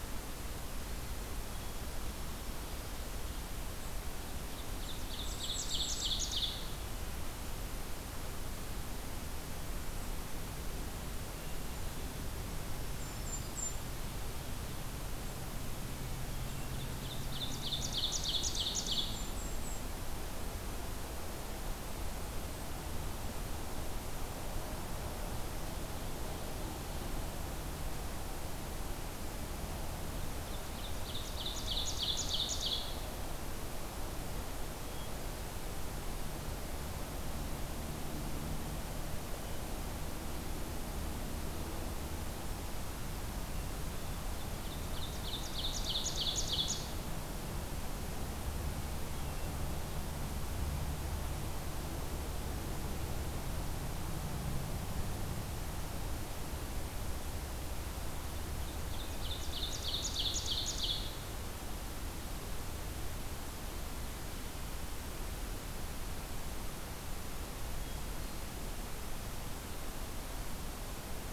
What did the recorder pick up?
Ovenbird, Golden-crowned Kinglet, Black-throated Green Warbler, Hermit Thrush